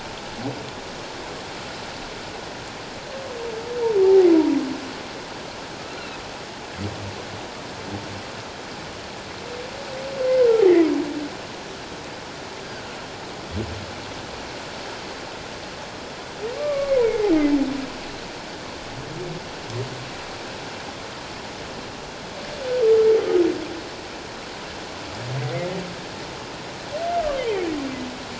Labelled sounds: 4.0	4.3	humpback whale, 0.78 to 0.94 kHz
16.6	17.3	humpback whale, 1.1 to 2.3 kHz

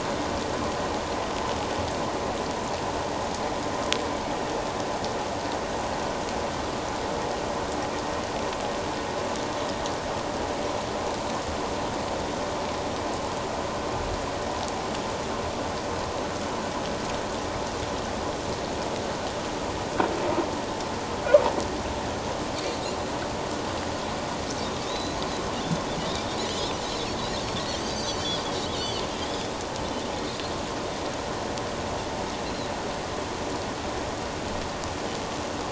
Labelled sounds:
22.6	22.8	Pacific white-sided dolphin, 4.2 to 4.7 kHz
24.8	25.4	Pacific white-sided dolphin, 3.5 to 6.6 kHz
27.7	29.0	Pacific white-sided dolphin, 2.8 to 6.3 kHz

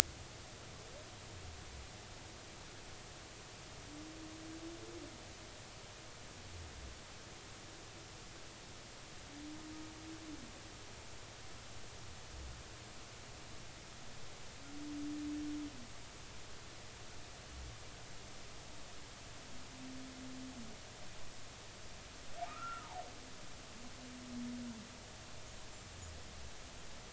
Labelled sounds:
22.5	22.9	humpback whale, 1.1 to 1.5 kHz

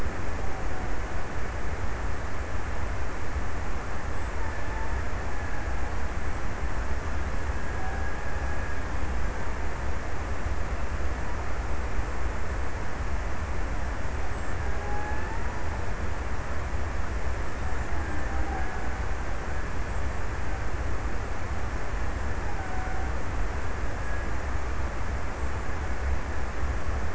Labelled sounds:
4.3	6.3	killer whale, Bigg's (transient), 0.67 to 2.1 kHz
7.2	9.1	killer whale, Bigg's (transient), 0.51 to 2.1 kHz
13.8	15.9	killer whale, Bigg's (transient), 0.57 to 2.0 kHz
22.2	23.7	killer whale, Bigg's (transient), 0.45 to 1.9 kHz

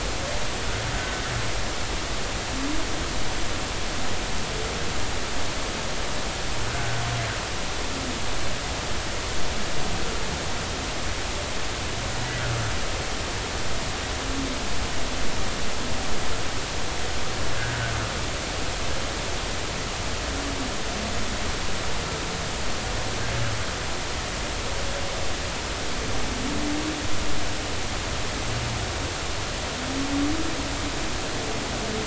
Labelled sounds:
0.9	1.2	humpback whale, 1.5 to 1.6 kHz
6.7	7.0	humpback whale, 1.5 to 1.6 kHz

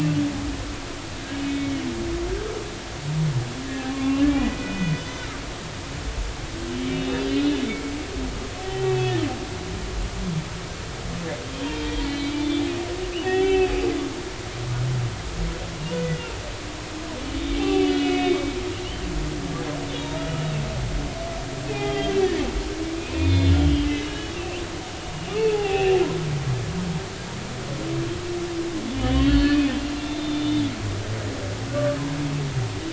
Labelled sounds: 1.1	1.7	humpback whale, 1.6 to 2.3 kHz
3.9	4.9	humpback whale, 1.0 to 2.8 kHz
6.9	7.9	humpback whale, 2.1 to 4.1 kHz
8.6	9.2	humpback whale, 1.9 to 3.0 kHz
11.5	12.6	humpback whale, 2.2 to 3.6 kHz
13.1	13.7	humpback whale, 0.80 to 3.5 kHz
17.6	18.4	humpback whale, 0.80 to 3.0 kHz
19.0	20.2	humpback whale, 2.1 to 3.9 kHz
21.7	22.2	humpback whale, 0.80 to 3.3 kHz
23.0	24.6	humpback whale, 2.1 to 5.0 kHz
25.1	26.0	humpback whale, 0.80 to 2.9 kHz
28.9	29.8	humpback whale, 1.7 to 4.8 kHz
31.0	32.0	humpback whale, 1.1 to 3.7 kHz

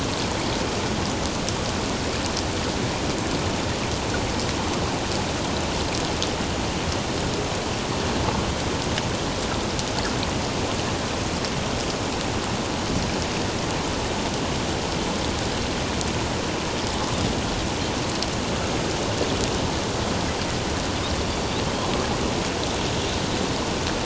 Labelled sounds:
21.3	21.6	Pacific white-sided dolphin, 4.5 to 4.8 kHz

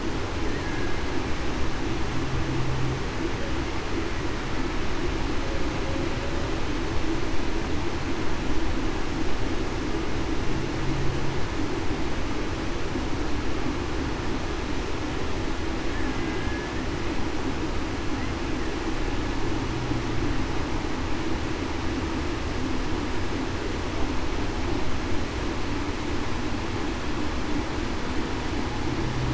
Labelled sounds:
16.2	16.6	killer whale, Bigg's (transient), 1.6 to 1.7 kHz

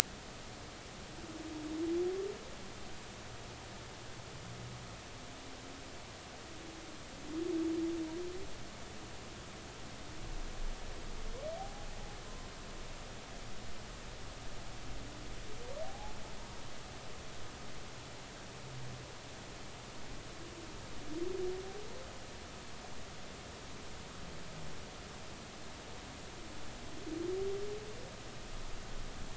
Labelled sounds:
11.6	12.5	humpback whale, 0.80 to 1.1 kHz
15.8	16.1	humpback whale, 0.80 to 0.90 kHz

